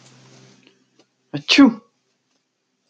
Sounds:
Sneeze